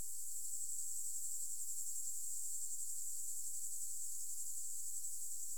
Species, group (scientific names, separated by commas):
Metaplastes ornatus, Orthoptera